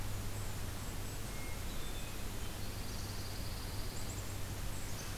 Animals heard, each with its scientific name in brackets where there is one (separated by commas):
Hermit Thrush (Catharus guttatus), Pine Warbler (Setophaga pinus), Golden-crowned Kinglet (Regulus satrapa), Black-capped Chickadee (Poecile atricapillus)